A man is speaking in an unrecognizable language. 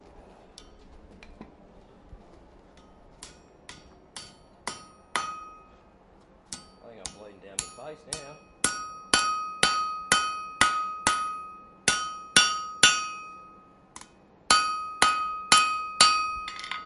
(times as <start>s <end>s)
6.8s 8.5s